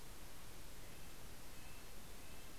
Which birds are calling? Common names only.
Red-breasted Nuthatch